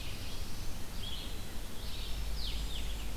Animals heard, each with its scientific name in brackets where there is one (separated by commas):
Black-capped Chickadee (Poecile atricapillus), Black-throated Blue Warbler (Setophaga caerulescens), Red-eyed Vireo (Vireo olivaceus)